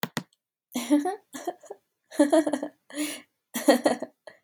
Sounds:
Laughter